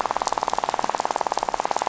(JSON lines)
{"label": "biophony, rattle", "recorder": "SoundTrap 500"}